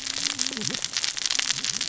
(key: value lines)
label: biophony, cascading saw
recorder: SoundTrap 600 or HydroMoth